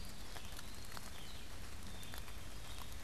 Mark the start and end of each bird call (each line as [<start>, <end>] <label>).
[0.00, 1.24] Eastern Wood-Pewee (Contopus virens)
[0.00, 3.03] Red-eyed Vireo (Vireo olivaceus)
[1.74, 2.94] Black-capped Chickadee (Poecile atricapillus)